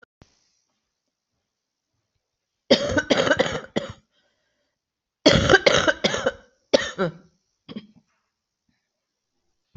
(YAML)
expert_labels:
- quality: good
  cough_type: wet
  dyspnea: false
  wheezing: false
  stridor: false
  choking: false
  congestion: false
  nothing: true
  diagnosis: lower respiratory tract infection
  severity: mild
age: 52
gender: female
respiratory_condition: false
fever_muscle_pain: false
status: symptomatic